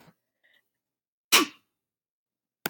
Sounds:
Sneeze